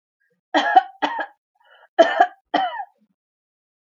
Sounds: Cough